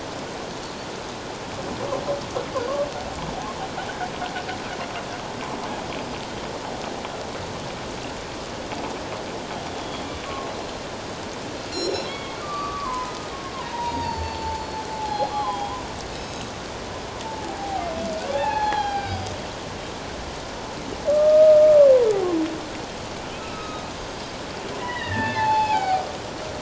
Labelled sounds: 9.7	10.1	Pacific white-sided dolphin, 3.2 to 3.5 kHz
11.7	12.4	Pacific white-sided dolphin, 2.1 to 7.1 kHz
12.4	13.2	humpback whale, 0.91 to 1.3 kHz
13.5	15.6	humpback whale, 0.78 to 4.8 kHz
15.3	16.5	Pacific white-sided dolphin, 0.78 to 6.6 kHz
17.2	17.8	humpback whale, 0.78 to 0.94 kHz
18.3	19.2	humpback whale, 0.78 to 4.3 kHz
21.1	21.6	humpback whale, 1.1 to 1.3 kHz
23.3	23.8	Pacific white-sided dolphin, 1.2 to 2.8 kHz
24.8	26.1	humpback whale, 0.78 to 4.7 kHz

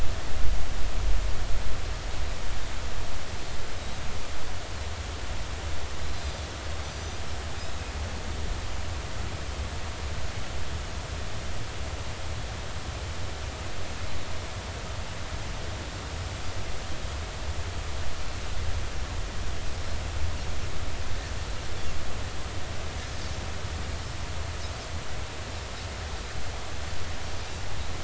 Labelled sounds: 3.7	4.0	Pacific white-sided dolphin, 3.7 to 3.9 kHz
6.0	7.2	Pacific white-sided dolphin, 4.0 to 6.1 kHz

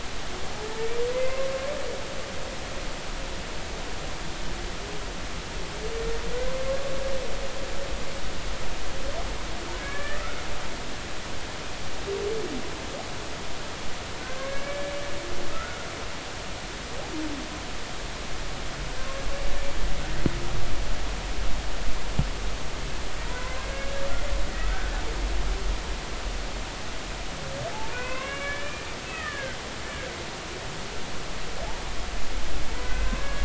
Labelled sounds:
1.1	1.4	humpback whale, 2.0 to 2.1 kHz
9.8	10.2	humpback whale, 1.6 to 2.4 kHz
14.4	14.9	humpback whale, 1.0 to 1.8 kHz
15.5	15.8	humpback whale, 1.2 to 1.5 kHz
23.2	24.0	humpback whale, 0.90 to 2.1 kHz
24.7	24.9	humpback whale, 1.5 to 1.6 kHz
27.9	28.8	humpback whale, 0.96 to 2.9 kHz
29.1	29.6	humpback whale, 1.2 to 2.0 kHz
29.9	30.2	humpback whale, 1.5 to 1.8 kHz
33.1	33.4	humpback whale, 0.99 to 1.7 kHz

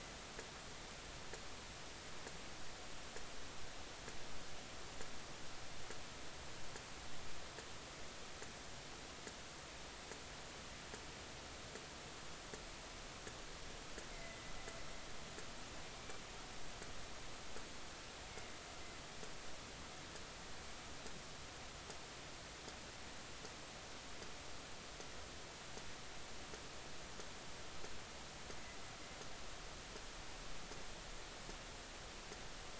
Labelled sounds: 14.1	14.4	killer whale, northern resident, A clan, AB subclan, B01 pod, call N01ii, 2.0 to 2.2 kHz

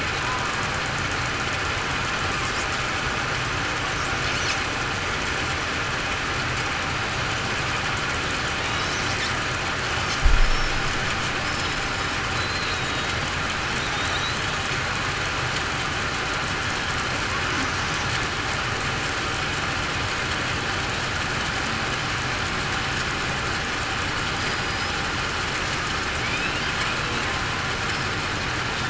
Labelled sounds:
8.6	9.0	killer whale, southern resident, 3.7 to 4.0 kHz
11.5	12.1	killer whale, southern resident, 5.1 to 5.3 kHz
12.4	12.8	killer whale, southern resident, 3.9 to 4.2 kHz

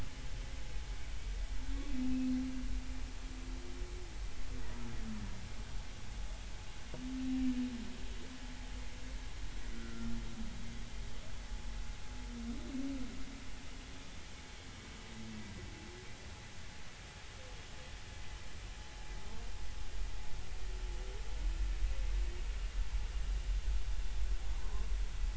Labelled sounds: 9.7	10.1	humpback whale, 1.3 to 1.5 kHz
24.6	24.9	humpback whale, 0.96 to 1.1 kHz

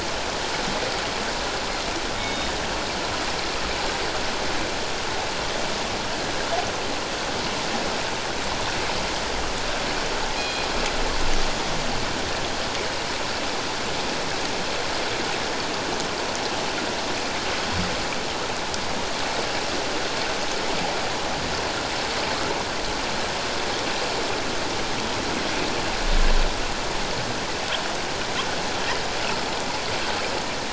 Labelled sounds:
2.2	2.5	killer whale, northern resident, G clan, call N24ii, 3.6 to 3.8 kHz
10.4	10.7	killer whale, northern resident, G clan, call N24ii, 2.4 to 4.2 kHz

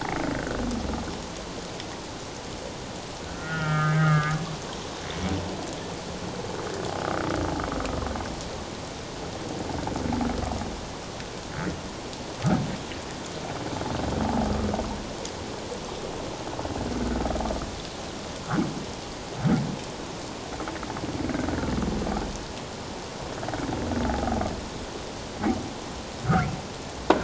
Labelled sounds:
3.4	4.4	humpback whale, 1.1 to 3.2 kHz
4.6	4.9	humpback whale, 0.84 to 1.2 kHz
24.1	24.4	humpback whale, 0.78 to 0.91 kHz
26.2	26.5	humpback whale, 1.1 to 1.7 kHz

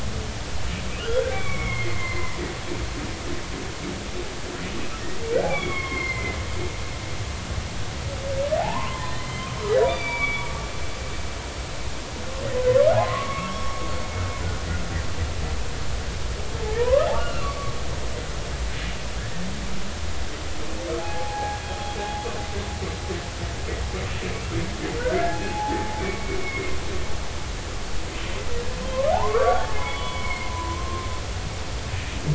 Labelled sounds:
1.0	2.4	humpback whale, 0.96 to 3.4 kHz
5.5	6.4	humpback whale, 0.99 to 4.3 kHz
8.6	10.5	humpback whale, 0.80 to 4.8 kHz
12.4	13.8	humpback whale, 0.80 to 2.2 kHz
16.7	17.7	humpback whale, 0.90 to 2.9 kHz
21.0	21.6	humpback whale, 0.80 to 1.7 kHz
25.0	26.8	humpback whale, 0.80 to 2.6 kHz
29.1	31.1	humpback whale, 0.80 to 3.4 kHz

